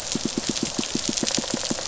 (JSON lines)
{"label": "biophony, pulse", "recorder": "SoundTrap 500"}